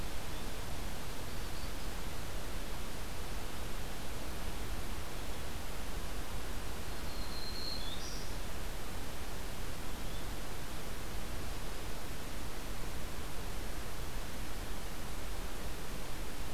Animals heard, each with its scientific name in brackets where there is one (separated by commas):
Yellow-bellied Flycatcher (Empidonax flaviventris), Black-throated Green Warbler (Setophaga virens)